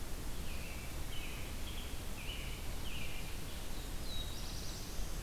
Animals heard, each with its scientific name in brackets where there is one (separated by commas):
Black-throated Blue Warbler (Setophaga caerulescens), American Robin (Turdus migratorius)